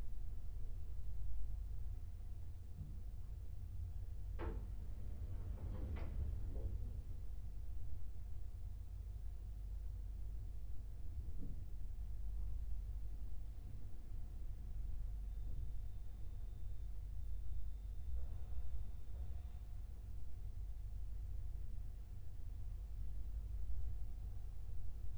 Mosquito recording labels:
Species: no mosquito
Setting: cup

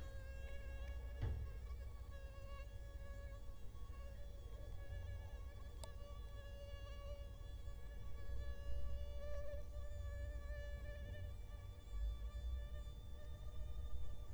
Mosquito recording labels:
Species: Culex quinquefasciatus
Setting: cup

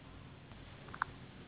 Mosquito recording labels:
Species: Anopheles gambiae s.s.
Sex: female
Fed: unfed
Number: one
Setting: insect culture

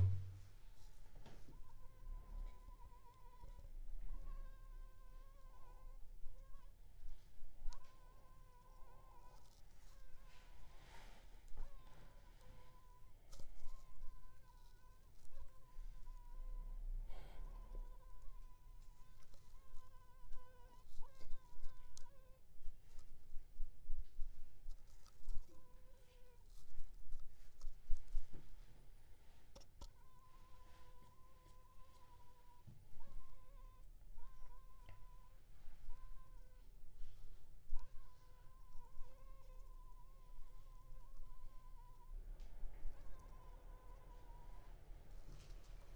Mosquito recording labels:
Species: Anopheles funestus s.s.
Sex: female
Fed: unfed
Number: one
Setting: cup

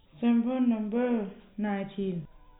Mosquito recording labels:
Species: no mosquito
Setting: cup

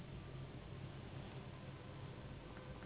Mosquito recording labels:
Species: Anopheles gambiae s.s.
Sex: female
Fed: unfed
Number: one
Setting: insect culture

